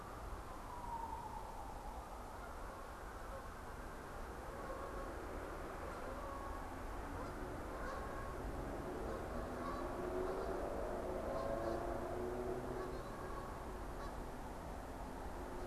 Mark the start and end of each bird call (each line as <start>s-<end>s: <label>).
4.2s-15.7s: Canada Goose (Branta canadensis)